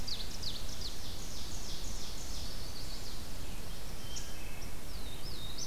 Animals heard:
Black-throated Blue Warbler (Setophaga caerulescens), Ovenbird (Seiurus aurocapilla), Chestnut-sided Warbler (Setophaga pensylvanica), Wood Thrush (Hylocichla mustelina)

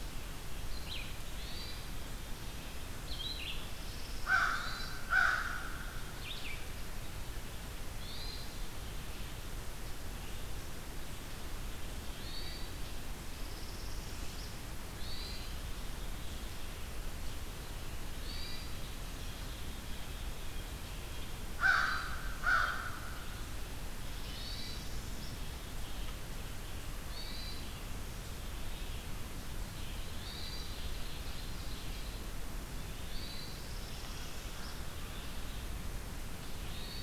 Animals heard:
Red-eyed Vireo (Vireo olivaceus), Northern Parula (Setophaga americana), American Crow (Corvus brachyrhynchos), Hermit Thrush (Catharus guttatus), Ovenbird (Seiurus aurocapilla)

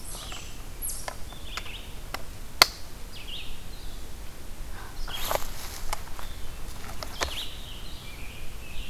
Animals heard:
Red-eyed Vireo (Vireo olivaceus), Eastern Chipmunk (Tamias striatus), American Robin (Turdus migratorius)

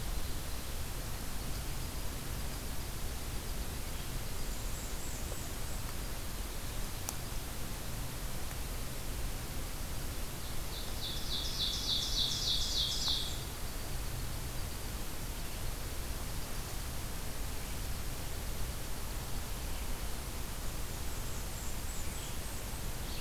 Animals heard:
Blackburnian Warbler (Setophaga fusca), Ovenbird (Seiurus aurocapilla)

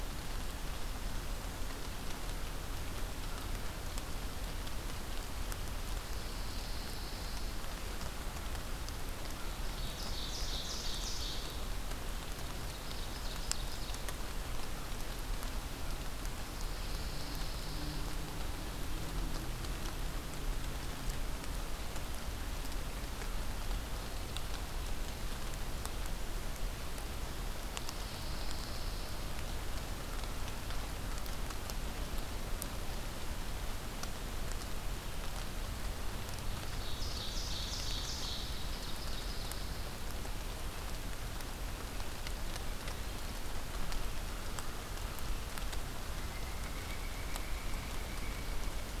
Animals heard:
Pine Warbler (Setophaga pinus), Pileated Woodpecker (Dryocopus pileatus), Ovenbird (Seiurus aurocapilla)

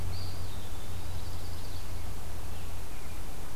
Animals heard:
Eastern Wood-Pewee (Contopus virens), Chestnut-sided Warbler (Setophaga pensylvanica)

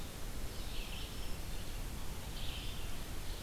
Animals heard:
Black-throated Green Warbler (Setophaga virens), Red-eyed Vireo (Vireo olivaceus)

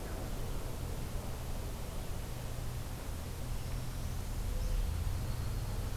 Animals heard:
Northern Parula (Setophaga americana), Yellow-rumped Warbler (Setophaga coronata)

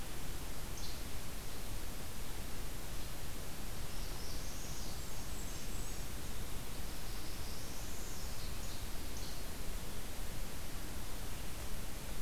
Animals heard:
Least Flycatcher (Empidonax minimus), Golden-crowned Kinglet (Regulus satrapa), Northern Parula (Setophaga americana)

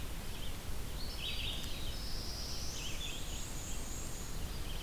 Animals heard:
Black-and-white Warbler (Mniotilta varia), Black-throated Blue Warbler (Setophaga caerulescens), Red-eyed Vireo (Vireo olivaceus)

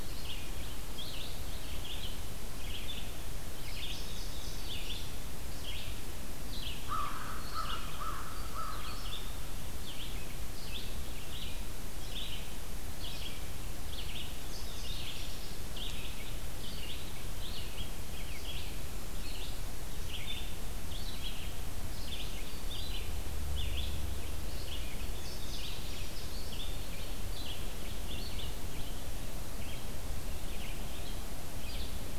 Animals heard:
Indigo Bunting (Passerina cyanea), American Crow (Corvus brachyrhynchos), Red-eyed Vireo (Vireo olivaceus), Black-throated Green Warbler (Setophaga virens)

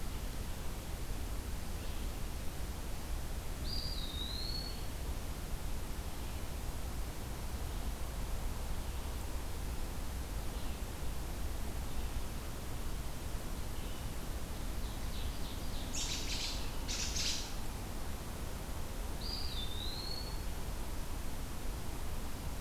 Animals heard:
American Robin (Turdus migratorius), Eastern Wood-Pewee (Contopus virens), Ovenbird (Seiurus aurocapilla)

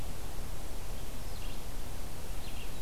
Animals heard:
Red-eyed Vireo (Vireo olivaceus)

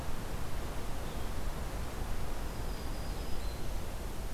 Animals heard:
Black-throated Green Warbler (Setophaga virens)

